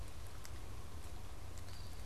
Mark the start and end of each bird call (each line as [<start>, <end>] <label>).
[1.47, 2.06] Eastern Wood-Pewee (Contopus virens)